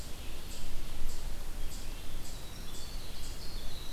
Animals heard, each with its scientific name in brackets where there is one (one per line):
Red-eyed Vireo (Vireo olivaceus)
Eastern Chipmunk (Tamias striatus)
Winter Wren (Troglodytes hiemalis)